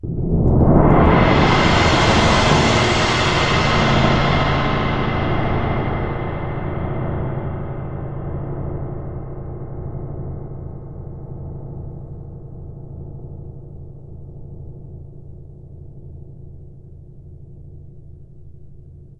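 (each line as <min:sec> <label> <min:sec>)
0:00.1 A loud metallic gong sounds loudly at first, then fades away. 0:19.2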